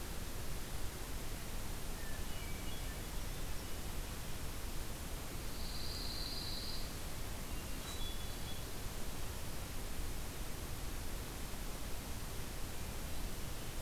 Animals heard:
Pine Warbler (Setophaga pinus)
Hermit Thrush (Catharus guttatus)

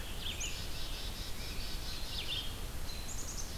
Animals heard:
American Robin (Turdus migratorius)
Black-capped Chickadee (Poecile atricapillus)
Red-eyed Vireo (Vireo olivaceus)

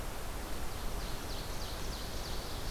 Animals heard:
Ovenbird (Seiurus aurocapilla)

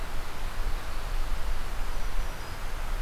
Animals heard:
Black-throated Green Warbler (Setophaga virens)

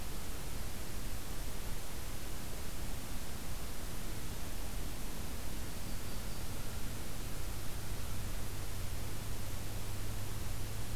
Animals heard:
Yellow-rumped Warbler (Setophaga coronata)

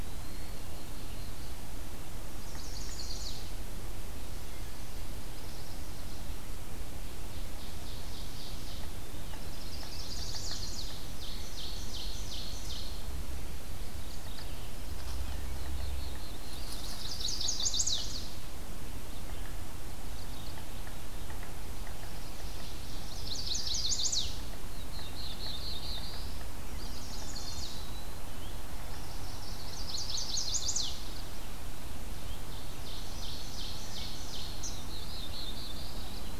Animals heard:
Ovenbird (Seiurus aurocapilla)
Black-throated Blue Warbler (Setophaga caerulescens)
Black-capped Chickadee (Poecile atricapillus)
Eastern Wood-Pewee (Contopus virens)
Mourning Warbler (Geothlypis philadelphia)
Chestnut-sided Warbler (Setophaga pensylvanica)

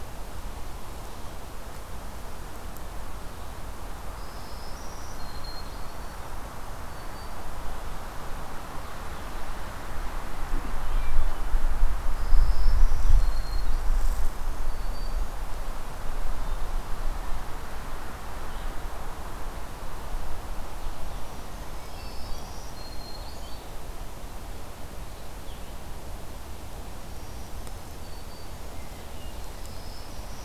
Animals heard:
Blue-headed Vireo (Vireo solitarius)
Black-throated Green Warbler (Setophaga virens)

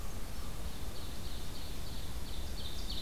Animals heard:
Ovenbird (Seiurus aurocapilla)

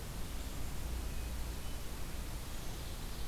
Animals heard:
Ovenbird (Seiurus aurocapilla)

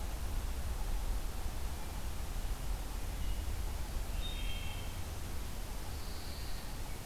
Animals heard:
Wood Thrush (Hylocichla mustelina)
Pine Warbler (Setophaga pinus)

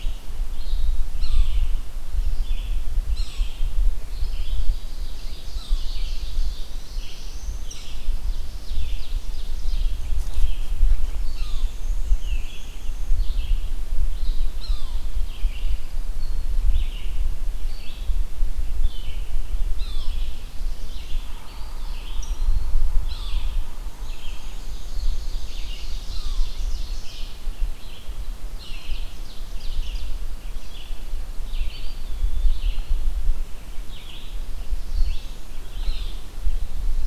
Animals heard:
Red-eyed Vireo (Vireo olivaceus)
Eastern Wood-Pewee (Contopus virens)
Black-throated Blue Warbler (Setophaga caerulescens)
Ovenbird (Seiurus aurocapilla)
Yellow-bellied Sapsucker (Sphyrapicus varius)
Pine Warbler (Setophaga pinus)
Black-and-white Warbler (Mniotilta varia)

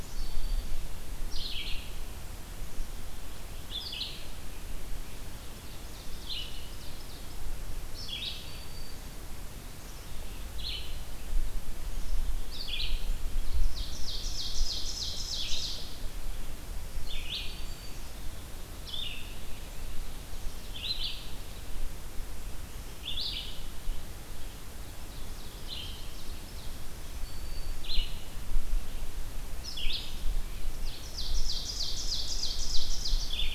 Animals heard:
Black-capped Chickadee (Poecile atricapillus)
Red-eyed Vireo (Vireo olivaceus)
Ovenbird (Seiurus aurocapilla)
Black-throated Green Warbler (Setophaga virens)

